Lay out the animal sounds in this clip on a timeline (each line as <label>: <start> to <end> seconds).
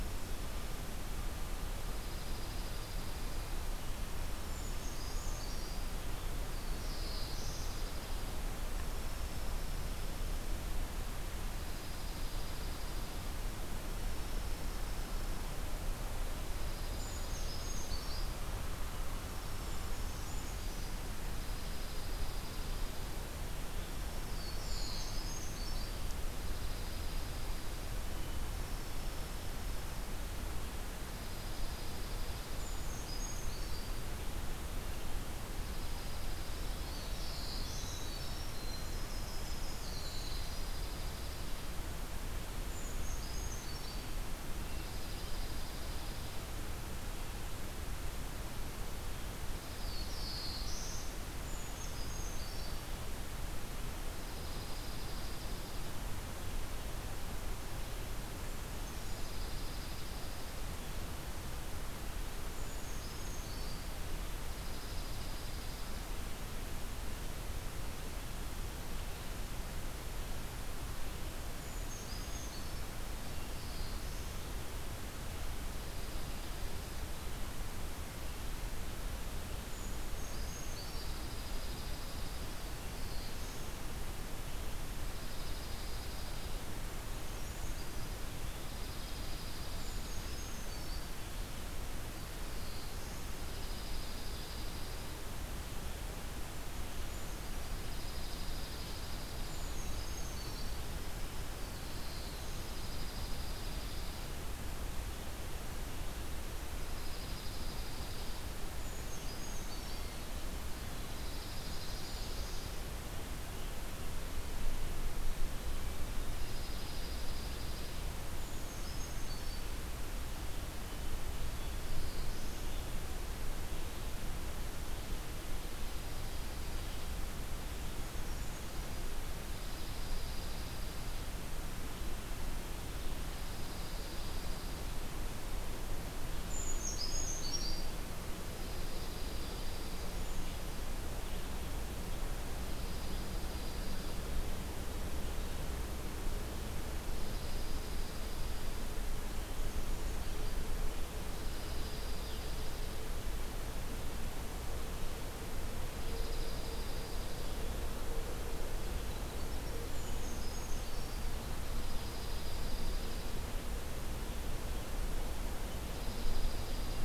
Dark-eyed Junco (Junco hyemalis): 1.9 to 3.5 seconds
Dark-eyed Junco (Junco hyemalis): 4.0 to 5.1 seconds
Brown Creeper (Certhia americana): 4.3 to 5.9 seconds
Black-throated Blue Warbler (Setophaga caerulescens): 6.4 to 7.9 seconds
Dark-eyed Junco (Junco hyemalis): 6.5 to 8.4 seconds
Dark-eyed Junco (Junco hyemalis): 11.2 to 13.3 seconds
Dark-eyed Junco (Junco hyemalis): 14.0 to 15.7 seconds
Dark-eyed Junco (Junco hyemalis): 16.2 to 18.1 seconds
Brown Creeper (Certhia americana): 16.8 to 18.5 seconds
Dark-eyed Junco (Junco hyemalis): 19.1 to 20.6 seconds
Brown Creeper (Certhia americana): 19.3 to 21.1 seconds
Dark-eyed Junco (Junco hyemalis): 21.3 to 23.2 seconds
Black-throated Blue Warbler (Setophaga caerulescens): 24.2 to 25.2 seconds
Brown Creeper (Certhia americana): 24.7 to 26.2 seconds
Dark-eyed Junco (Junco hyemalis): 26.3 to 27.8 seconds
Dark-eyed Junco (Junco hyemalis): 31.0 to 32.8 seconds
Brown Creeper (Certhia americana): 32.5 to 34.2 seconds
Dark-eyed Junco (Junco hyemalis): 35.4 to 37.0 seconds
Black-throated Blue Warbler (Setophaga caerulescens): 36.5 to 38.2 seconds
Winter Wren (Troglodytes hiemalis): 37.0 to 40.5 seconds
Dark-eyed Junco (Junco hyemalis): 40.3 to 41.7 seconds
Brown Creeper (Certhia americana): 42.5 to 44.3 seconds
Dark-eyed Junco (Junco hyemalis): 44.6 to 46.4 seconds
Black-throated Blue Warbler (Setophaga caerulescens): 49.6 to 51.2 seconds
Brown Creeper (Certhia americana): 51.3 to 53.0 seconds
Dark-eyed Junco (Junco hyemalis): 54.1 to 56.0 seconds
Dark-eyed Junco (Junco hyemalis): 58.9 to 60.6 seconds
Brown Creeper (Certhia americana): 62.4 to 63.9 seconds
Dark-eyed Junco (Junco hyemalis): 64.5 to 66.0 seconds
Brown Creeper (Certhia americana): 71.4 to 72.9 seconds
Black-throated Blue Warbler (Setophaga caerulescens): 73.1 to 74.5 seconds
Dark-eyed Junco (Junco hyemalis): 75.7 to 77.1 seconds
Brown Creeper (Certhia americana): 79.5 to 81.6 seconds
Dark-eyed Junco (Junco hyemalis): 80.7 to 82.8 seconds
Black-throated Blue Warbler (Setophaga caerulescens): 82.5 to 83.8 seconds
Dark-eyed Junco (Junco hyemalis): 85.0 to 86.5 seconds
Brown Creeper (Certhia americana): 86.8 to 88.2 seconds
Dark-eyed Junco (Junco hyemalis): 88.6 to 90.3 seconds
Brown Creeper (Certhia americana): 89.5 to 91.1 seconds
Black-throated Blue Warbler (Setophaga caerulescens): 91.9 to 93.5 seconds
Dark-eyed Junco (Junco hyemalis): 93.4 to 95.2 seconds
Brown Creeper (Certhia americana): 96.5 to 97.7 seconds
Dark-eyed Junco (Junco hyemalis): 97.6 to 99.8 seconds
Brown Creeper (Certhia americana): 99.3 to 101.0 seconds
Winter Wren (Troglodytes hiemalis): 100.5 to 102.5 seconds
Dark-eyed Junco (Junco hyemalis): 102.4 to 104.4 seconds
Dark-eyed Junco (Junco hyemalis): 106.7 to 108.5 seconds
Brown Creeper (Certhia americana): 108.5 to 110.2 seconds
Dark-eyed Junco (Junco hyemalis): 111.0 to 112.9 seconds
Brown Creeper (Certhia americana): 111.4 to 112.7 seconds
Dark-eyed Junco (Junco hyemalis): 116.2 to 118.4 seconds
Brown Creeper (Certhia americana): 118.2 to 119.7 seconds
Black-throated Blue Warbler (Setophaga caerulescens): 121.4 to 122.8 seconds
Dark-eyed Junco (Junco hyemalis): 125.7 to 127.2 seconds
Brown Creeper (Certhia americana): 127.7 to 129.1 seconds
Dark-eyed Junco (Junco hyemalis): 129.3 to 131.1 seconds
Dark-eyed Junco (Junco hyemalis): 133.2 to 134.8 seconds
Brown Creeper (Certhia americana): 136.3 to 138.2 seconds
Dark-eyed Junco (Junco hyemalis): 138.4 to 140.2 seconds
Brown Creeper (Certhia americana): 140.0 to 141.0 seconds
Dark-eyed Junco (Junco hyemalis): 142.6 to 144.3 seconds
Dark-eyed Junco (Junco hyemalis): 147.0 to 148.9 seconds
Dark-eyed Junco (Junco hyemalis): 151.3 to 153.1 seconds
Dark-eyed Junco (Junco hyemalis): 156.0 to 157.6 seconds
Brown Creeper (Certhia americana): 159.8 to 161.4 seconds
Dark-eyed Junco (Junco hyemalis): 161.5 to 163.3 seconds
Dark-eyed Junco (Junco hyemalis): 165.8 to 167.0 seconds